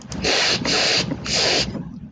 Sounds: Sniff